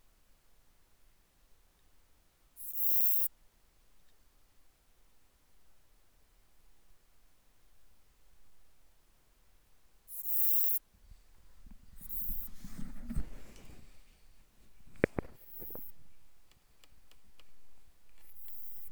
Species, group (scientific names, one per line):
Eupholidoptera forcipata
Orthoptera